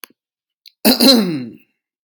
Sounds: Cough